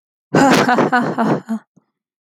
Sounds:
Laughter